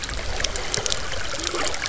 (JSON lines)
{"label": "biophony", "recorder": "SoundTrap 300"}